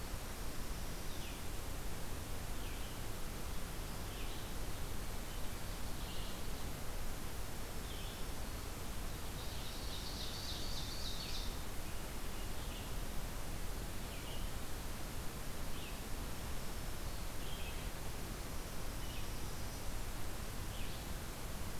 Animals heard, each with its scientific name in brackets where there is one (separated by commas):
Red-eyed Vireo (Vireo olivaceus), Ovenbird (Seiurus aurocapilla)